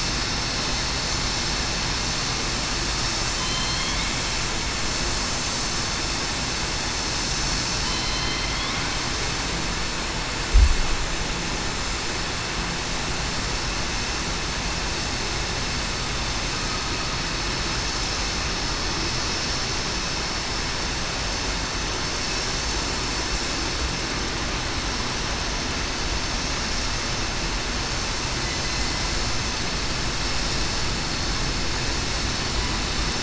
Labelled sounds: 1.5	1.9	vessel noise, 6.16 to 6.21 kHz
3.3	4.0	killer whale, southern resident, 3.0 to 4.4 kHz
7.8	8.5	killer whale, southern resident, 4.0 to 4.2 kHz
21.6	22.0	vessel noise, 6.21 to 6.23 kHz
28.4	28.9	killer whale, southern resident, 4.0 to 4.2 kHz
29.4	29.9	vessel noise, 6.2 to 6.3 kHz

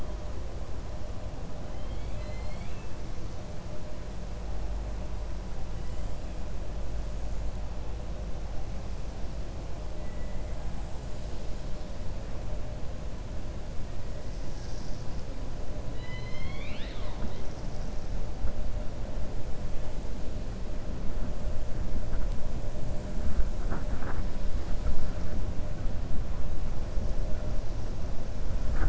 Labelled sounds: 1.7	2.9	killer whale, 1.7 to 4.8 kHz
15.9	17.4	killer whale, 0.95 to 5.2 kHz

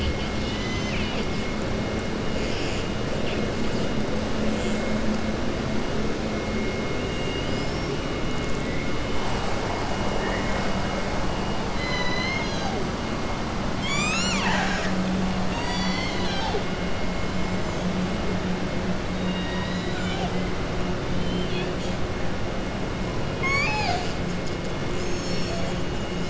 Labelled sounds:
0.3	1.3	killer whale, southern resident, 2.0 to 7.1 kHz
7.0	7.9	killer whale, southern resident, 2.8 to 5.6 kHz
11.7	12.7	killer whale, southern resident, 1.0 to 6.5 kHz
23.3	24.2	killer whale, southern resident, 0.75 to 7.8 kHz

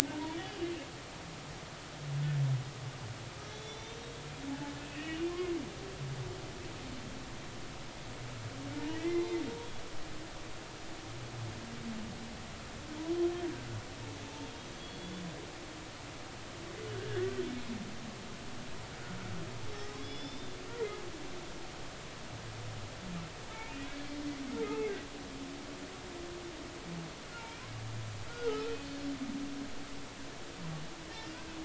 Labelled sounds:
0.1	0.7	humpback whale, 0.86 to 3.1 kHz
3.5	4.0	humpback whale, 3.4 to 6.1 kHz
4.8	5.3	humpback whale, 1.8 to 3.0 kHz
8.9	9.2	humpback whale, 1.9 to 2.1 kHz
13.5	14.5	humpback whale, 0.83 to 1.7 kHz
14.8	15.2	humpback whale, 3.3 to 3.5 kHz
16.9	17.3	humpback whale, 1.4 to 2.0 kHz
19.7	20.5	humpback whale, 3.3 to 5.5 kHz
24.6	24.9	humpback whale, 2.0 to 2.2 kHz
27.4	27.6	humpback whale, 2.2 to 2.5 kHz
28.3	29.0	humpback whale, 1.2 to 4.6 kHz

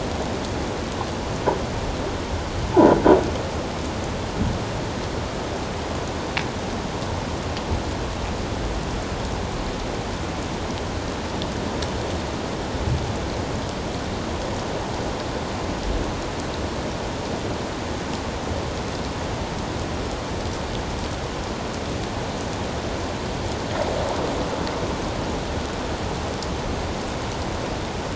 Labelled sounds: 2.7	3.0	croaking sound likely from a nearby submerged object, 0.81 to 1.0 kHz

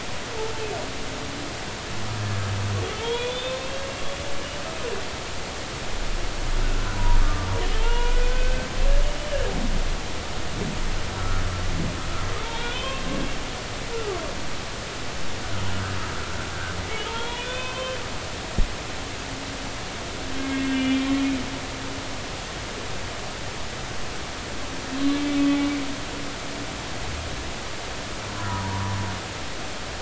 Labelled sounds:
3.0	3.7	humpback whale, 3.1 to 3.9 kHz
6.6	7.5	humpback whale, 0.90 to 1.6 kHz
7.8	8.7	humpback whale, 0.86 to 2.9 kHz
11.2	11.4	humpback whale, 1.2 to 1.4 kHz
12.4	13.0	humpback whale, 0.86 to 3.6 kHz
13.9	14.2	humpback whale, 1.1 to 1.4 kHz
17.1	18.0	humpback whale, 0.86 to 3.6 kHz
20.4	21.0	humpback whale, 2.1 to 3.5 kHz
28.5	28.9	humpback whale, 0.83 to 1.2 kHz

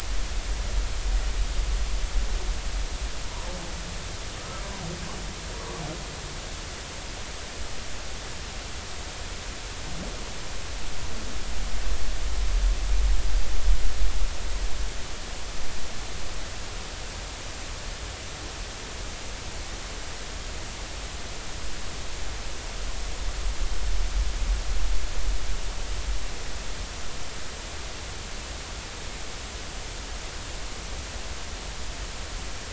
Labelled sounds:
4.4	4.6	humpback whale, 1.2 to 1.4 kHz

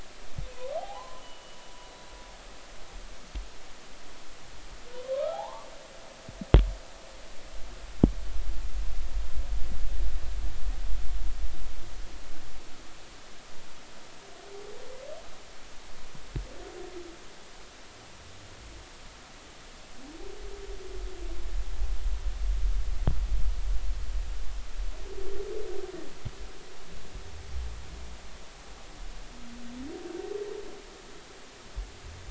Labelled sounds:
0.7	1.6	humpback whale, 0.80 to 3.1 kHz
5.3	5.7	humpback whale, 0.80 to 1.2 kHz

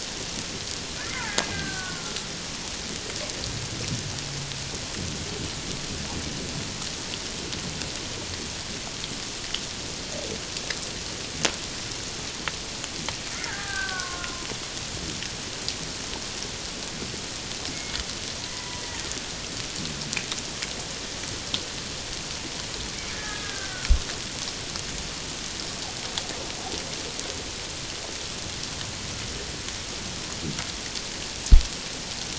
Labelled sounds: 1.1	2.3	killer whale, Bigg's (transient), 1.0 to 2.2 kHz
13.4	14.5	killer whale, Bigg's (transient), 0.78 to 1.9 kHz
18.5	19.1	killer whale, Bigg's (transient), 0.94 to 2.1 kHz
23.1	23.9	killer whale, Bigg's (transient), 1.2 to 1.9 kHz

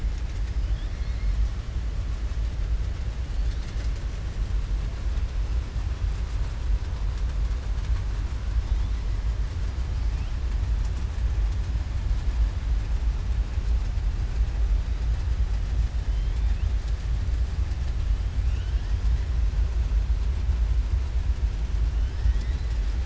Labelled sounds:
16.1	16.6	killer whale, southern resident, 1.8 to 3.6 kHz

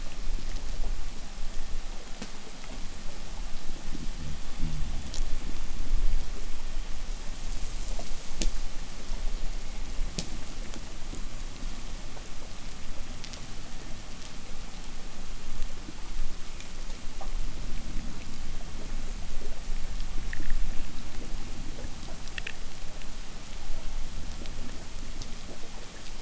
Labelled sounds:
3.6	5.3	fish, 0 to 0.54 kHz
6.8	9.1	abiotic sound, 1.4 to 8.0 kHz

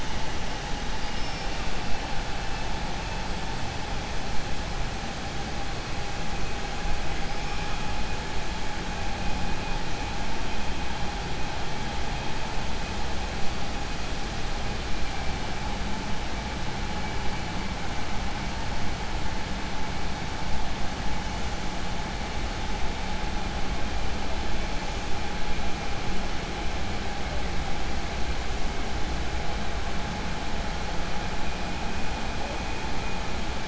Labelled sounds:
0.9	1.5	killer whale, 4.6 to 5.5 kHz

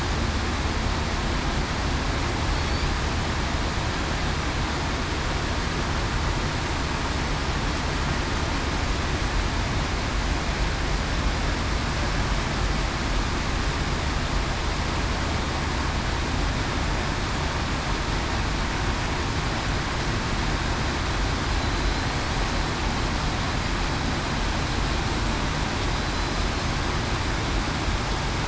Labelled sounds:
21.8	22.1	killer whale, southern resident, 4.0 to 4.2 kHz

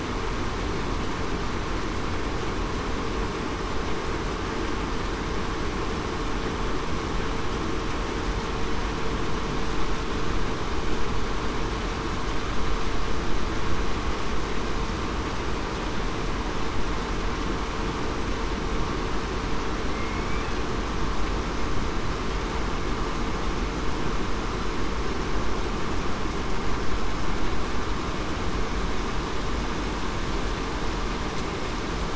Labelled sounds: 19.9	20.3	killer whale, southern resident, 2.1 to 2.2 kHz

